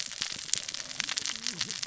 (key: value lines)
label: biophony, cascading saw
recorder: SoundTrap 600 or HydroMoth